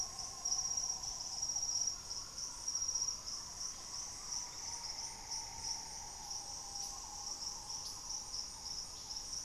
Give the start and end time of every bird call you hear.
[0.00, 9.45] Green Ibis (Mesembrinibis cayennensis)

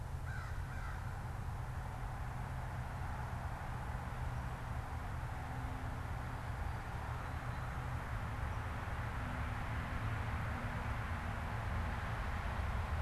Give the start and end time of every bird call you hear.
[0.00, 1.30] American Crow (Corvus brachyrhynchos)

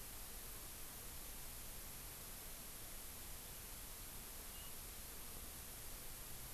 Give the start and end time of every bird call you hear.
[4.51, 4.71] Warbling White-eye (Zosterops japonicus)

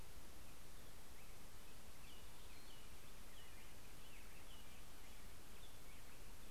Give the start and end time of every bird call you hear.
[0.00, 6.51] Black-headed Grosbeak (Pheucticus melanocephalus)
[1.50, 5.80] American Robin (Turdus migratorius)

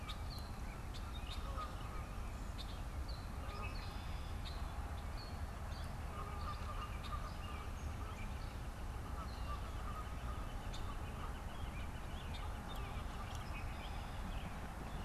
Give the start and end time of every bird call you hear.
[0.00, 2.00] Canada Goose (Branta canadensis)
[3.31, 4.80] Red-winged Blackbird (Agelaius phoeniceus)
[5.91, 15.01] Canada Goose (Branta canadensis)

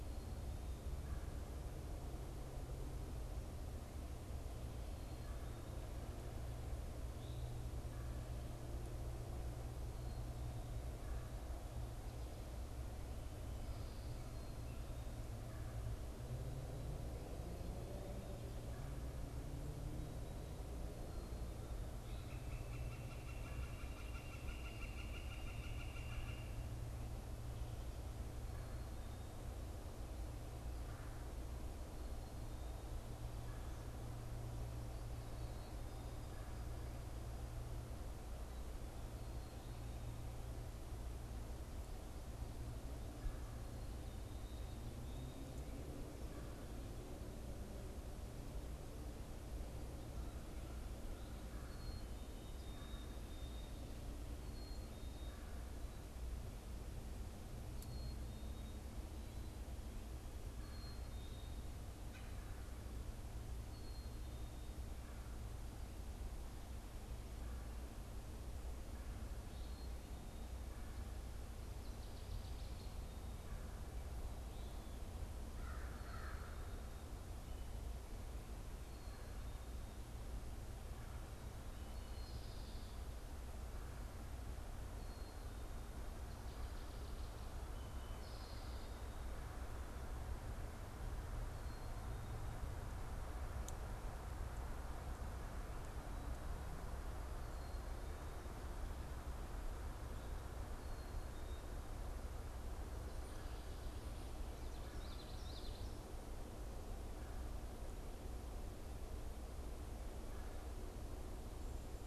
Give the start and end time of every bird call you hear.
[21.98, 26.78] Northern Flicker (Colaptes auratus)
[51.68, 55.48] Black-capped Chickadee (Poecile atricapillus)
[57.78, 64.38] Black-capped Chickadee (Poecile atricapillus)
[75.38, 76.88] American Crow (Corvus brachyrhynchos)
[81.78, 85.48] Black-capped Chickadee (Poecile atricapillus)
[87.68, 88.78] Eastern Towhee (Pipilo erythrophthalmus)
[104.78, 105.98] Common Yellowthroat (Geothlypis trichas)

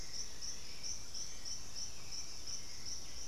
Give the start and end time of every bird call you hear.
[0.00, 0.53] Chestnut-winged Foliage-gleaner (Dendroma erythroptera)
[0.00, 3.28] Hauxwell's Thrush (Turdus hauxwelli)
[0.00, 3.28] Russet-backed Oropendola (Psarocolius angustifrons)

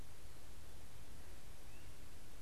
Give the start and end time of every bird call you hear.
[0.00, 2.41] Great Crested Flycatcher (Myiarchus crinitus)

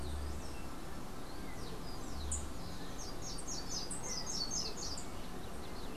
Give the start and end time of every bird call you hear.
[2.63, 5.13] Slate-throated Redstart (Myioborus miniatus)

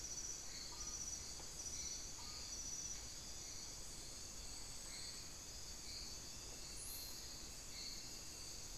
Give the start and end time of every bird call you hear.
[0.00, 2.56] unidentified bird

